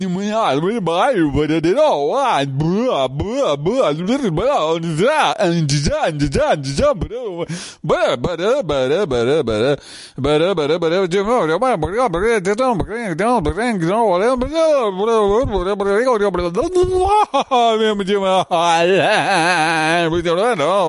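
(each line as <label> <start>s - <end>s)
Person speaking in a made-up language indoors. 0.0s - 20.9s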